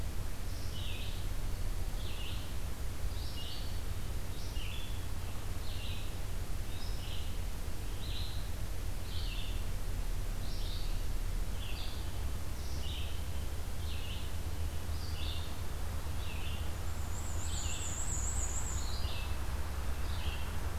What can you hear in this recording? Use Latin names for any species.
Vireo olivaceus, Mniotilta varia